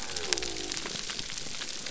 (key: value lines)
label: biophony
recorder: SoundTrap 300